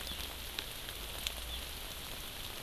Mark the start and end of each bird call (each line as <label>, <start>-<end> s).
Hawaii Amakihi (Chlorodrepanis virens), 0.0-0.2 s